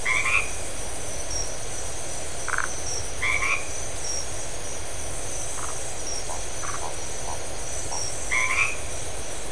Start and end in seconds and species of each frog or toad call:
0.0	0.6	white-edged tree frog
2.4	2.8	Phyllomedusa distincta
3.1	3.7	white-edged tree frog
5.5	5.8	Phyllomedusa distincta
6.5	6.8	Phyllomedusa distincta
8.2	8.8	white-edged tree frog
11:15pm

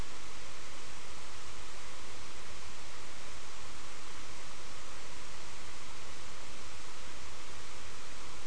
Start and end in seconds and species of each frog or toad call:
none
4:30am

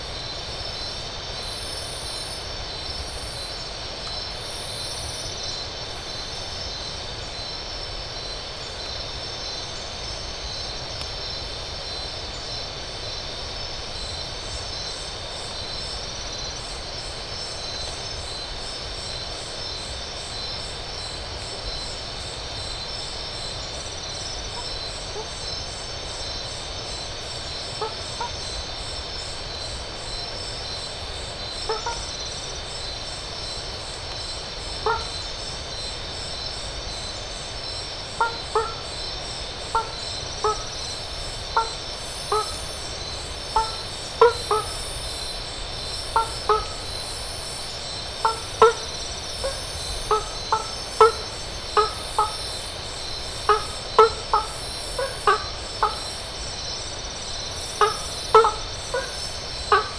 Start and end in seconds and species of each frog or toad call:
27.8	28.6	blacksmith tree frog
31.6	32.1	blacksmith tree frog
34.8	35.2	blacksmith tree frog
38.1	44.7	blacksmith tree frog
45.9	47.0	blacksmith tree frog
48.3	56.1	blacksmith tree frog
57.7	59.9	blacksmith tree frog
10:15pm

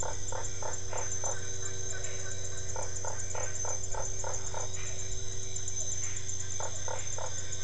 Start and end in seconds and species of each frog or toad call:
0.0	1.4	Usina tree frog
0.0	7.6	Dendropsophus cruzi
2.7	4.7	Usina tree frog
6.6	7.3	Usina tree frog
7:00pm

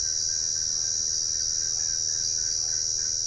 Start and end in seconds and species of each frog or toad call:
0.2	3.2	Dendropsophus cruzi
7:15pm

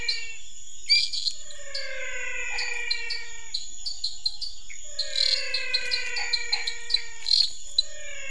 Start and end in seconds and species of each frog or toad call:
0.0	8.3	dwarf tree frog
0.0	8.3	menwig frog
2.4	2.9	Chaco tree frog
6.1	6.7	Chaco tree frog
7:45pm

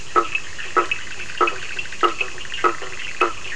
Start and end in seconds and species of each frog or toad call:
0.0	2.2	Bischoff's tree frog
0.0	3.5	blacksmith tree frog
0.0	3.5	Cochran's lime tree frog
10:15pm

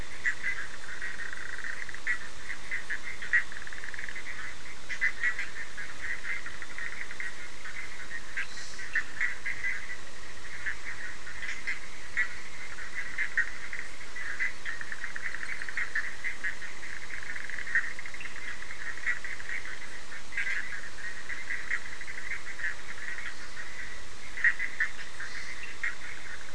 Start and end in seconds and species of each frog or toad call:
0.0	26.5	Bischoff's tree frog
8.8	9.2	Cochran's lime tree frog
18.0	18.4	Cochran's lime tree frog
25.5	25.9	Cochran's lime tree frog
9:30pm

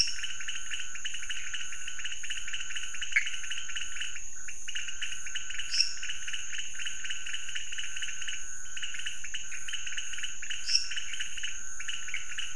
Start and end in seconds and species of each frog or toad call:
0.0	12.5	pointedbelly frog
3.1	3.3	Pithecopus azureus
5.7	6.1	lesser tree frog
10.5	11.1	lesser tree frog
3:00am

